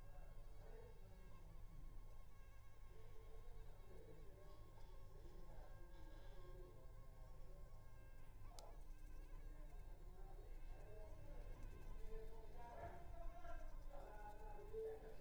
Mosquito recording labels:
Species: Culex pipiens complex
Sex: female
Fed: unfed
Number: one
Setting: cup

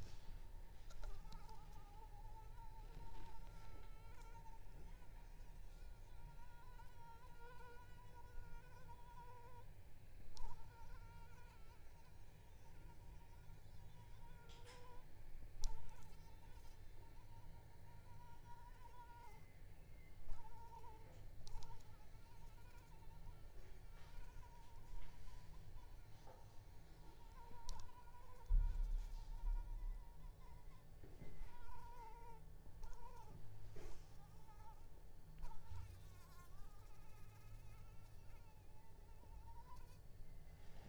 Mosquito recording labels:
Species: Anopheles arabiensis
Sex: female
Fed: unfed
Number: one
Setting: cup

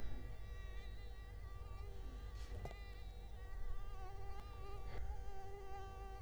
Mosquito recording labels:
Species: Culex quinquefasciatus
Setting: cup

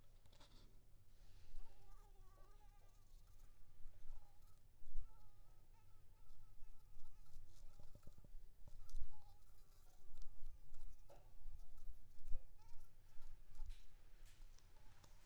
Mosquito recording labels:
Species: Anopheles maculipalpis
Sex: female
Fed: unfed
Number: one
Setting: cup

